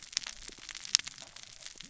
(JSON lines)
{"label": "biophony, cascading saw", "recorder": "SoundTrap 600 or HydroMoth"}